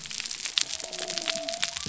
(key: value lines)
label: biophony
recorder: SoundTrap 300